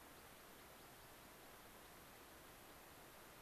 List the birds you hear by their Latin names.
Anthus rubescens